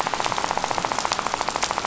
{"label": "biophony, rattle", "recorder": "SoundTrap 500"}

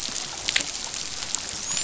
{"label": "biophony, dolphin", "recorder": "SoundTrap 500"}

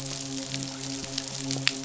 {"label": "biophony, midshipman", "recorder": "SoundTrap 500"}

